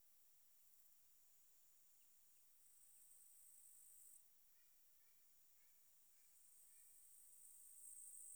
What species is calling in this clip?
Tettigonia cantans